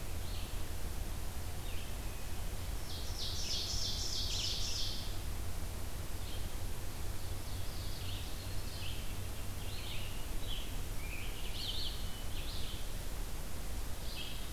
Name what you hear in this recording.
Red-eyed Vireo, Ovenbird, Eastern Wood-Pewee, Scarlet Tanager